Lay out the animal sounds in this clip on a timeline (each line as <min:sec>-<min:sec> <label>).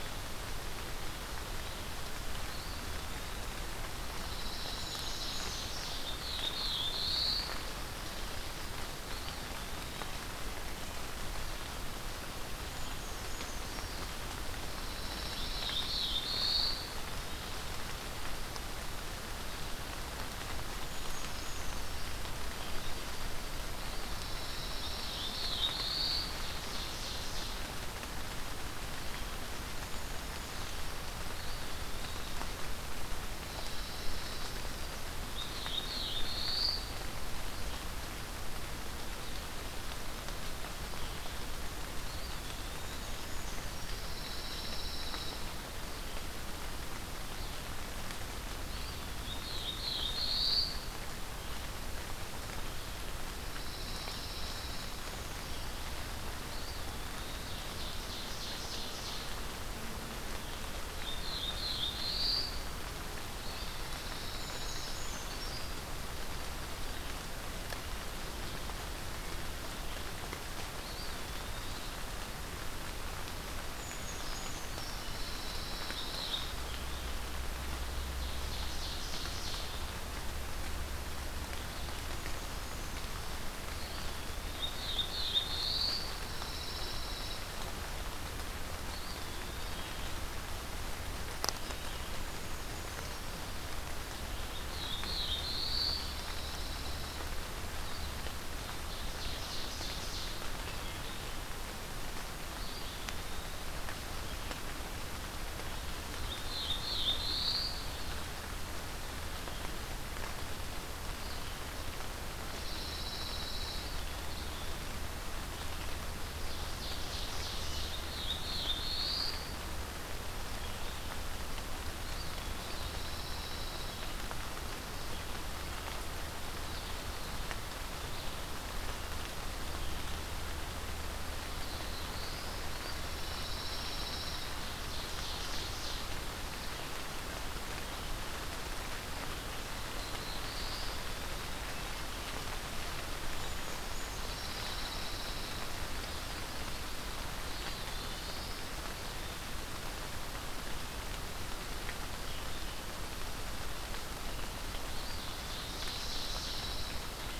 0:04.0-0:06.0 Pine Warbler (Setophaga pinus)
0:04.4-0:06.1 Ovenbird (Seiurus aurocapilla)
0:04.6-0:05.9 Brown Creeper (Certhia americana)
0:05.9-0:07.7 Black-throated Blue Warbler (Setophaga caerulescens)
0:09.0-0:10.3 Eastern Wood-Pewee (Contopus virens)
0:12.6-0:14.1 Brown Creeper (Certhia americana)
0:14.4-0:16.1 Pine Warbler (Setophaga pinus)
0:15.2-0:17.2 Black-throated Blue Warbler (Setophaga caerulescens)
0:20.8-0:22.2 Brown Creeper (Certhia americana)
0:23.5-0:25.6 Pine Warbler (Setophaga pinus)
0:24.6-0:26.5 Black-throated Blue Warbler (Setophaga caerulescens)
0:25.8-0:27.7 Ovenbird (Seiurus aurocapilla)
0:29.8-0:30.8 Brown Creeper (Certhia americana)
0:31.3-0:32.4 Eastern Wood-Pewee (Contopus virens)
0:33.2-0:35.0 Pine Warbler (Setophaga pinus)
0:35.2-0:36.9 Black-throated Blue Warbler (Setophaga caerulescens)
0:42.0-0:43.4 Eastern Wood-Pewee (Contopus virens)
0:42.7-0:44.0 Brown Creeper (Certhia americana)
0:43.7-0:45.5 Pine Warbler (Setophaga pinus)
0:48.6-0:49.8 Eastern Wood-Pewee (Contopus virens)
0:49.0-0:50.9 Black-throated Blue Warbler (Setophaga caerulescens)
0:53.3-0:55.0 Pine Warbler (Setophaga pinus)
0:56.3-0:57.7 Eastern Wood-Pewee (Contopus virens)
0:57.3-0:59.4 Ovenbird (Seiurus aurocapilla)
1:00.7-1:02.9 Black-throated Blue Warbler (Setophaga caerulescens)
1:03.2-1:05.1 Pine Warbler (Setophaga pinus)
1:03.4-1:04.5 Eastern Wood-Pewee (Contopus virens)
1:04.2-1:05.9 Brown Creeper (Certhia americana)
1:10.6-1:12.0 Eastern Wood-Pewee (Contopus virens)
1:13.6-1:15.3 Brown Creeper (Certhia americana)
1:14.5-1:16.6 Pine Warbler (Setophaga pinus)
1:15.9-1:16.6 Black-throated Blue Warbler (Setophaga caerulescens)
1:17.9-1:19.8 Ovenbird (Seiurus aurocapilla)
1:22.1-1:23.4 Brown Creeper (Certhia americana)
1:23.6-1:24.9 Eastern Wood-Pewee (Contopus virens)
1:24.2-1:26.3 Black-throated Blue Warbler (Setophaga caerulescens)
1:25.4-1:27.7 Pine Warbler (Setophaga pinus)
1:28.7-1:30.2 Eastern Wood-Pewee (Contopus virens)
1:32.1-1:33.5 Brown Creeper (Certhia americana)
1:34.4-1:36.3 Black-throated Blue Warbler (Setophaga caerulescens)
1:35.6-1:37.4 Pine Warbler (Setophaga pinus)
1:38.5-1:40.6 Ovenbird (Seiurus aurocapilla)
1:42.5-1:43.9 Eastern Wood-Pewee (Contopus virens)
1:46.2-1:48.1 Black-throated Blue Warbler (Setophaga caerulescens)
1:52.3-1:54.0 Pine Warbler (Setophaga pinus)
1:56.2-1:58.1 Ovenbird (Seiurus aurocapilla)
1:57.7-1:59.8 Black-throated Blue Warbler (Setophaga caerulescens)
2:02.0-2:02.9 Eastern Wood-Pewee (Contopus virens)
2:02.3-2:04.2 Pine Warbler (Setophaga pinus)
2:11.5-2:12.7 Black-throated Blue Warbler (Setophaga caerulescens)
2:12.8-2:14.5 Pine Warbler (Setophaga pinus)
2:14.6-2:16.2 Ovenbird (Seiurus aurocapilla)
2:19.7-2:21.2 Black-throated Blue Warbler (Setophaga caerulescens)
2:23.4-2:24.5 Brown Creeper (Certhia americana)
2:23.9-2:25.7 Pine Warbler (Setophaga pinus)
2:27.1-2:28.7 Eastern Wood-Pewee (Contopus virens)
2:34.8-2:36.2 Eastern Wood-Pewee (Contopus virens)
2:35.3-2:37.4 Pine Warbler (Setophaga pinus)